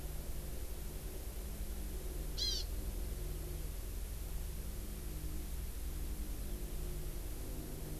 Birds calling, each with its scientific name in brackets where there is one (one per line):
Hawaii Amakihi (Chlorodrepanis virens)